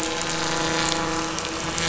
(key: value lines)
label: anthrophony, boat engine
recorder: SoundTrap 500